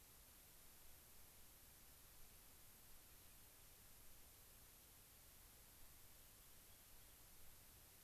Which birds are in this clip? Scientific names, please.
Salpinctes obsoletus